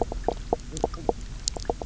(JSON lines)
{"label": "biophony, knock croak", "recorder": "SoundTrap 300"}